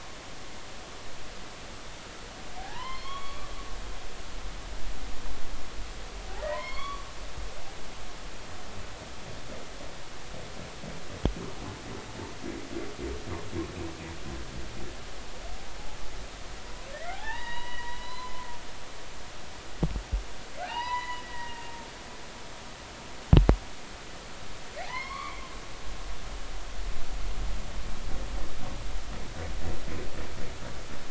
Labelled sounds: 2.6	3.5	humpback whale, 0.80 to 5.5 kHz
6.4	7.0	humpback whale, 0.90 to 4.6 kHz
16.9	18.5	humpback whale, 0.80 to 4.9 kHz
20.6	21.7	humpback whale, 0.80 to 7.0 kHz
24.8	25.4	humpback whale, 0.80 to 4.6 kHz

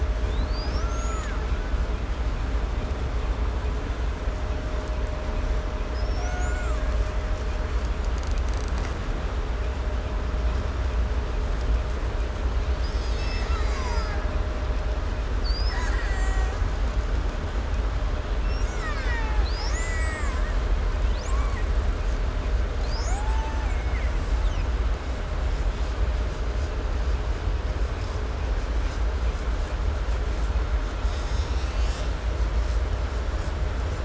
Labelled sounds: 0.0	2.1	killer whale, 0.82 to 7.6 kHz
5.8	7.2	killer whale, 0.62 to 7.8 kHz
7.7	9.2	killer whale, 1.1 to 8.0 kHz
12.4	14.7	killer whale, 0.70 to 8.0 kHz
15.3	17.1	killer whale, Bigg's (transient), call T07, 0.57 to 8.0 kHz
18.4	19.5	killer whale, Bigg's (transient), call T04, 0.59 to 8.0 kHz
19.4	25.0	killer whale, 0.45 to 8.0 kHz
30.7	32.2	killer whale, Bigg's (transient), 0.66 to 8.0 kHz

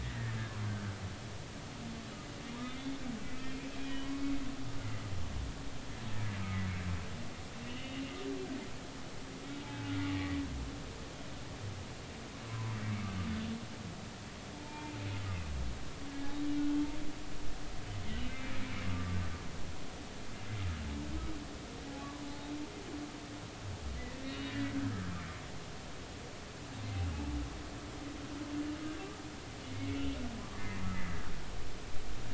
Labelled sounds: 0.0	0.3	humpback whale, 1.6 to 2.0 kHz
2.6	3.0	humpback whale, 2.0 to 2.2 kHz
3.8	4.1	humpback whale, 1.8 to 3.0 kHz
7.7	8.0	humpback whale, 2.8 to 3.0 kHz
9.6	10.4	humpback whale, 0.80 to 2.1 kHz
12.5	12.8	humpback whale, 0.90 to 1.1 kHz
14.5	14.9	humpback whale, 0.83 to 2.4 kHz
18.2	19.2	humpback whale, 1.1 to 2.7 kHz
24.7	25.0	humpback whale, 1.4 to 1.8 kHz
29.7	30.0	humpback whale, 2.1 to 2.3 kHz
30.5	31.2	humpback whale, 1.6 to 2.2 kHz

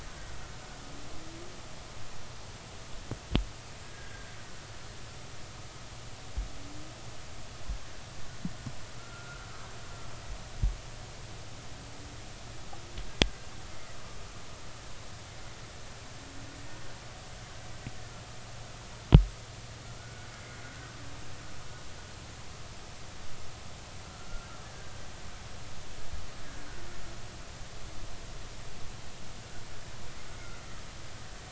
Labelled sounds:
3.8	4.3	killer whale, Bigg's (transient), 1.5 to 1.7 kHz
9.0	9.5	killer whale, Bigg's (transient), 1.3 to 1.6 kHz
13.2	13.5	killer whale, Bigg's (transient), 1.5 to 1.7 kHz
19.9	20.3	killer whale, Bigg's (transient), 1.3 to 1.5 kHz
20.6	20.9	killer whale, Bigg's (transient), 1.4 to 1.6 kHz
24.0	24.5	killer whale, Bigg's (transient), 1.3 to 1.4 kHz

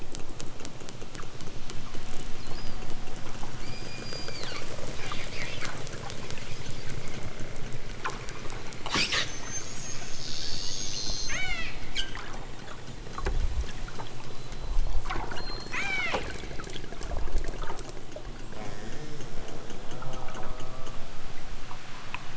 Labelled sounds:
3.6	4.7	killer whale, southern Alaska resident, 0.87 to 5.2 kHz
8.1	8.9	killer whale, southern Alaska resident, 2.7 to 8.0 kHz
10.9	11.7	killer whale, southern Alaska resident, 0.50 to 8.0 kHz
15.3	16.3	killer whale, southern Alaska resident, 0.28 to 8.0 kHz

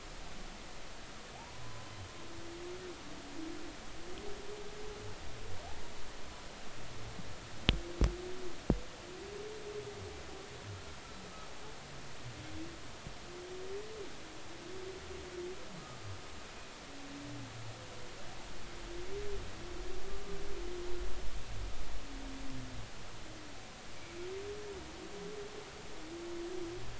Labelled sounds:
1.4	1.9	humpback whale, 0.80 to 1.1 kHz

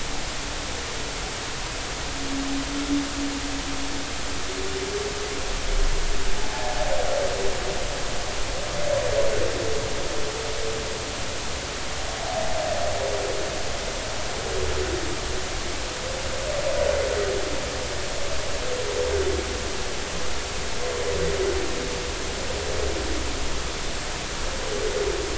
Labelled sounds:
6.5	6.7	humpback whale, 0.80 to 0.93 kHz

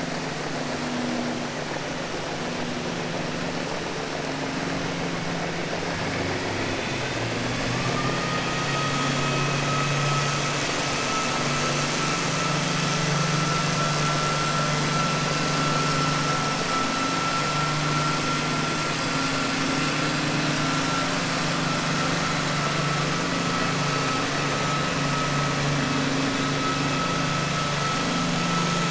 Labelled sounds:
8.6	9.1	vessel noise, 0.99 to 2.6 kHz

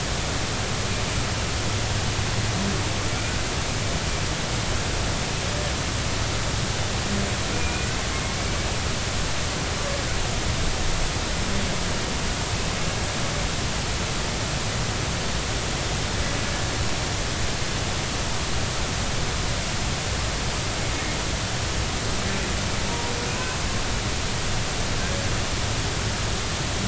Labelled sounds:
7.6	7.9	humpback whale, 2.3 to 2.5 kHz
22.9	23.1	humpback whale, 0.90 to 0.99 kHz

